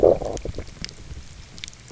{"label": "biophony, low growl", "recorder": "SoundTrap 300"}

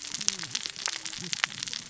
{"label": "biophony, cascading saw", "recorder": "SoundTrap 600 or HydroMoth"}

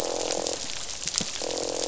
{"label": "biophony, croak", "recorder": "SoundTrap 500"}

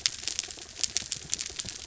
{"label": "anthrophony, mechanical", "recorder": "SoundTrap 300"}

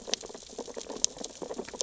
{"label": "biophony, sea urchins (Echinidae)", "recorder": "SoundTrap 600 or HydroMoth"}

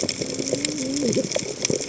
{"label": "biophony, cascading saw", "recorder": "HydroMoth"}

